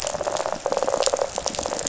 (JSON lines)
{"label": "biophony, rattle", "recorder": "SoundTrap 500"}